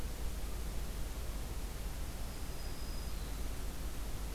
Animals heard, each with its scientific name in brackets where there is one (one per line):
Black-throated Green Warbler (Setophaga virens)